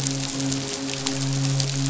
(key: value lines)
label: biophony, midshipman
recorder: SoundTrap 500